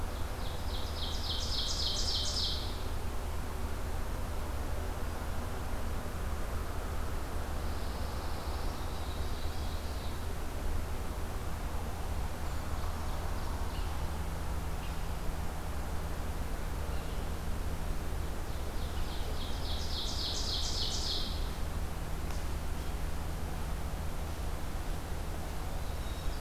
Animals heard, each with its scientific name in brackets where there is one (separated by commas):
Pine Warbler (Setophaga pinus), Ovenbird (Seiurus aurocapilla)